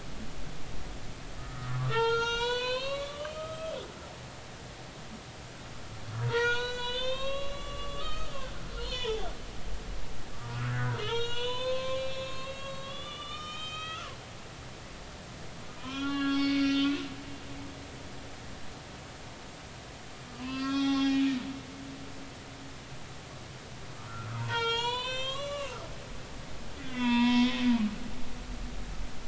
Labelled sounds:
1.4	3.8	humpback whale, 0.83 to 7.9 kHz
6.2	9.3	humpback whale, 0.80 to 6.9 kHz
10.5	14.1	humpback whale, 0.90 to 7.3 kHz
15.8	17.1	humpback whale, 0.93 to 5.4 kHz
20.3	21.4	humpback whale, 0.80 to 6.1 kHz
24.0	25.8	humpback whale, 0.86 to 7.5 kHz
26.8	27.6	humpback whale, 0.90 to 5.6 kHz

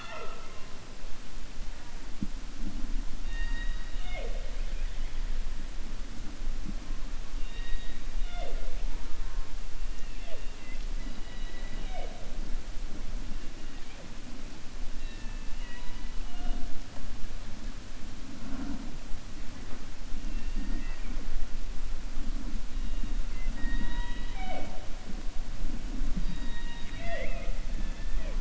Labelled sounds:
3.2	4.6	killer whale, 0.44 to 4.7 kHz
7.3	8.0	killer whale, 1.8 to 4.7 kHz
9.9	10.8	killer whale, 0.45 to 3.7 kHz
27.7	28.3	killer whale, 0.49 to 3.5 kHz

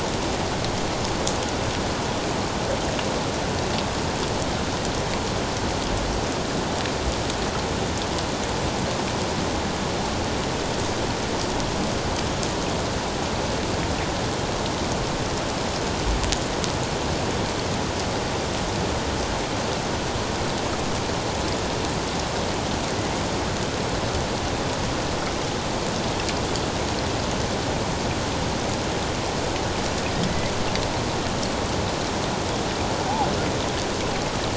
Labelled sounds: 30.3	30.5	killer whale, northern resident, A clan, AA subclan, A04 pod, 1.9 to 2.2 kHz

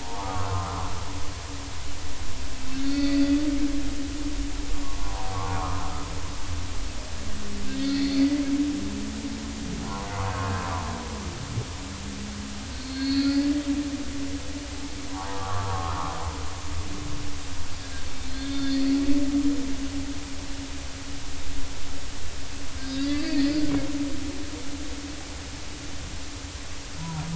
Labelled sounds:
0.0	0.8	humpback whale, 0.80 to 1.4 kHz
2.7	3.2	humpback whale, 1.9 to 4.6 kHz
5.0	5.9	humpback whale, 0.80 to 1.4 kHz
7.7	8.2	humpback whale, 1.9 to 4.7 kHz
12.7	13.4	humpback whale, 1.3 to 4.6 kHz
15.1	16.0	humpback whale, 0.80 to 1.4 kHz
18.3	18.9	humpback whale, 1.5 to 4.4 kHz
22.9	23.5	humpback whale, 1.7 to 4.9 kHz

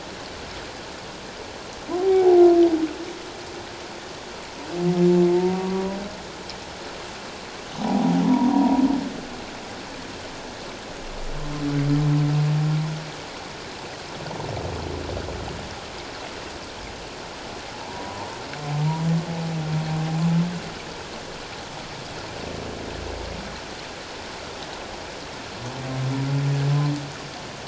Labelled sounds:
2.0	2.4	humpback whale, 0.78 to 0.88 kHz
5.3	6.0	humpback whale, 0.88 to 1.2 kHz
7.8	8.8	humpback whale, 0.78 to 1.1 kHz
17.8	18.3	humpback whale, 0.78 to 1.0 kHz

